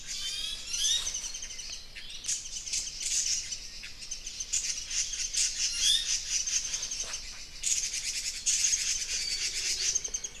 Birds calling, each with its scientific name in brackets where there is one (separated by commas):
Warbling White-eye (Zosterops japonicus), Iiwi (Drepanis coccinea), Red-billed Leiothrix (Leiothrix lutea)